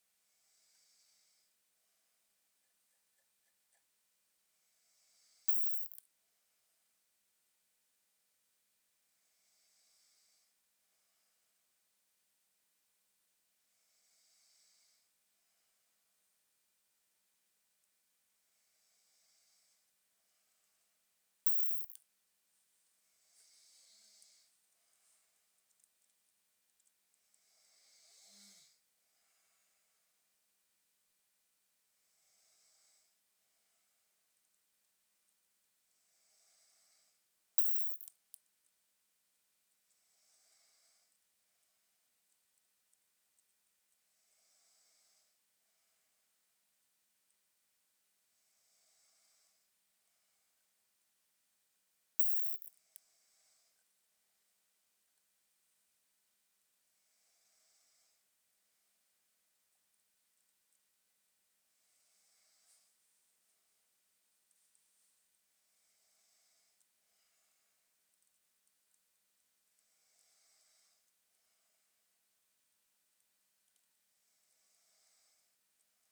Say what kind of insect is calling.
orthopteran